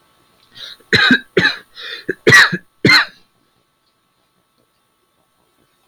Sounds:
Cough